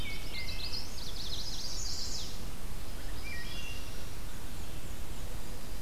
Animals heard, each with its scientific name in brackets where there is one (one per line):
Black-and-white Warbler (Mniotilta varia)
Chestnut-sided Warbler (Setophaga pensylvanica)
Wood Thrush (Hylocichla mustelina)